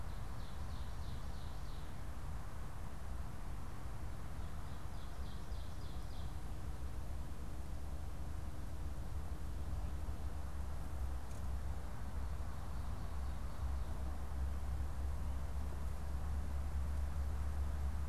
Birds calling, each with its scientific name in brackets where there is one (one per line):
Ovenbird (Seiurus aurocapilla)